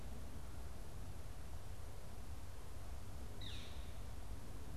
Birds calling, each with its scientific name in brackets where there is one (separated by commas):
Northern Flicker (Colaptes auratus)